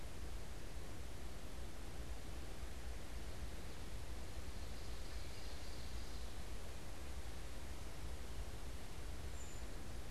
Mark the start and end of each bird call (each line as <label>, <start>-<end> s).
Ovenbird (Seiurus aurocapilla), 4.1-6.5 s
Brown Creeper (Certhia americana), 9.1-9.9 s